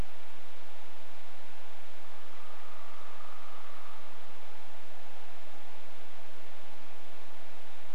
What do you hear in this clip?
woodpecker drumming